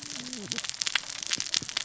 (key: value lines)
label: biophony, cascading saw
recorder: SoundTrap 600 or HydroMoth